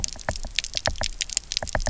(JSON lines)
{"label": "biophony, knock", "recorder": "SoundTrap 300"}